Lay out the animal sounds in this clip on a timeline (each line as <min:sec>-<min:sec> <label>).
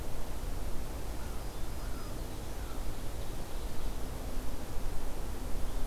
0:01.1-0:02.9 American Crow (Corvus brachyrhynchos)
0:01.3-0:02.4 Black-throated Green Warbler (Setophaga virens)
0:02.4-0:04.0 Ovenbird (Seiurus aurocapilla)